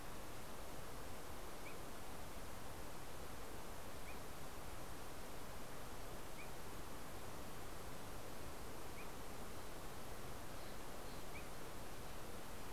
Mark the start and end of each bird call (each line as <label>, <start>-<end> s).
Steller's Jay (Cyanocitta stelleri), 9.6-12.1 s